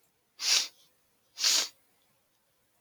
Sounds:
Sniff